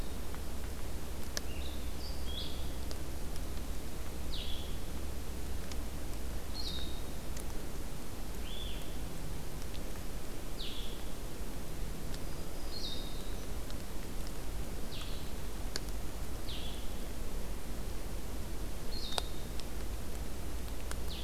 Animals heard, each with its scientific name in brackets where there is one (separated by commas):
Blue-headed Vireo (Vireo solitarius), Black-throated Green Warbler (Setophaga virens)